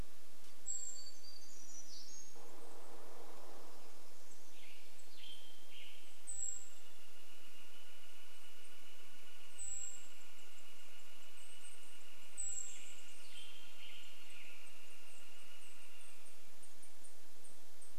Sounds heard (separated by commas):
woodpecker drumming, Pacific-slope Flycatcher call, warbler song, Golden-crowned Kinglet call, Golden-crowned Kinglet song, Western Tanager song, Northern Flicker call